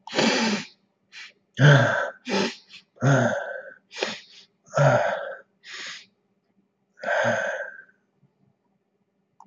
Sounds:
Sniff